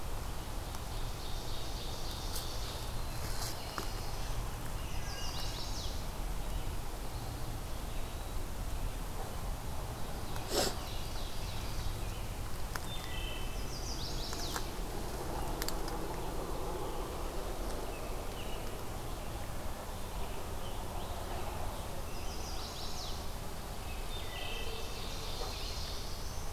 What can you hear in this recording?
Ovenbird, Black-throated Blue Warbler, Chestnut-sided Warbler, Eastern Wood-Pewee, Wood Thrush